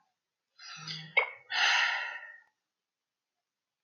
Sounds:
Sigh